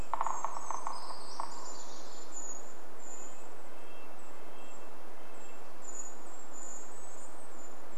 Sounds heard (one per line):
woodpecker drumming
Brown Creeper call
Brown Creeper song
Golden-crowned Kinglet song
Red-breasted Nuthatch song
Golden-crowned Kinglet call